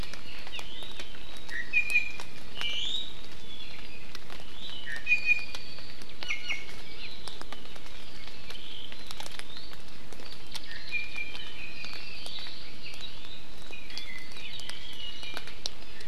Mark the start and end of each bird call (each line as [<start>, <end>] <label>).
[0.50, 0.60] Hawaii Amakihi (Chlorodrepanis virens)
[1.50, 3.10] Iiwi (Drepanis coccinea)
[4.50, 5.80] Iiwi (Drepanis coccinea)
[6.20, 6.80] Iiwi (Drepanis coccinea)
[6.90, 7.20] Hawaii Amakihi (Chlorodrepanis virens)
[9.40, 9.70] Iiwi (Drepanis coccinea)
[10.60, 12.20] Iiwi (Drepanis coccinea)
[13.70, 14.30] Iiwi (Drepanis coccinea)
[14.80, 15.50] Iiwi (Drepanis coccinea)